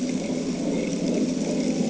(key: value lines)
label: anthrophony, boat engine
recorder: HydroMoth